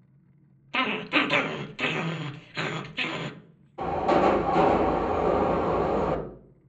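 At 0.7 seconds, growling is heard. After that, at 3.8 seconds, the sound of a subway can be heard.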